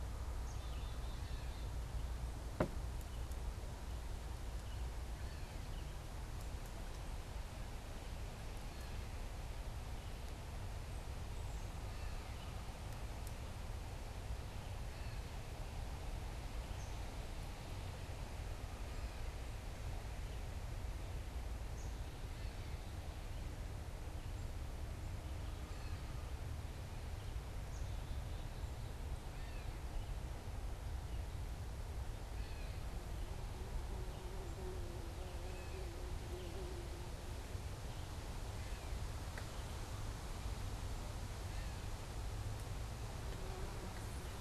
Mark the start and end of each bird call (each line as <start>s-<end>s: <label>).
0.0s-4.0s: Black-capped Chickadee (Poecile atricapillus)
0.0s-5.2s: Red-eyed Vireo (Vireo olivaceus)
5.1s-44.4s: Gray Catbird (Dumetella carolinensis)
21.5s-29.4s: Black-capped Chickadee (Poecile atricapillus)
33.0s-44.4s: Red-eyed Vireo (Vireo olivaceus)